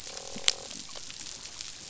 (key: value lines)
label: biophony, croak
recorder: SoundTrap 500